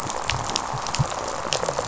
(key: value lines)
label: biophony, rattle response
recorder: SoundTrap 500